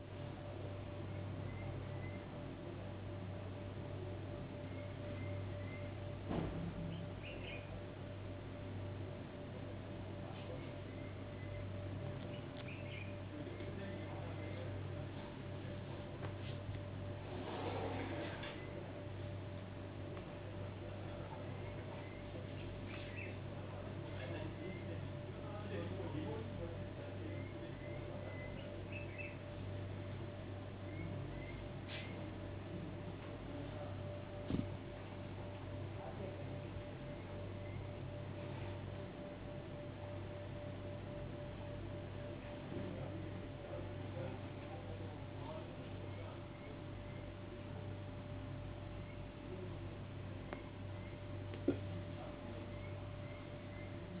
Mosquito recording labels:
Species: no mosquito; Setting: insect culture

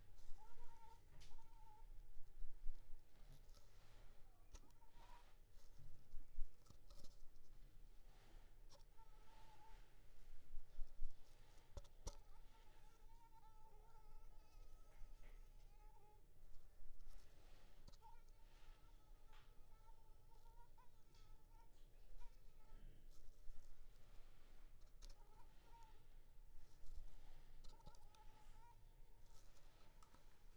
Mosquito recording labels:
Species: Anopheles arabiensis; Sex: female; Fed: unfed; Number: one; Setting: cup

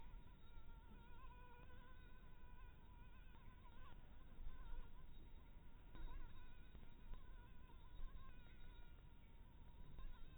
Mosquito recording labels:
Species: Anopheles harrisoni; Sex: female; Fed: blood-fed; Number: one; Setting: cup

